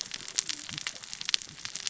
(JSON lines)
{"label": "biophony, cascading saw", "recorder": "SoundTrap 600 or HydroMoth"}